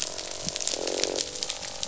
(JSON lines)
{"label": "biophony, croak", "recorder": "SoundTrap 500"}